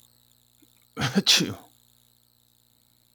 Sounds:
Sneeze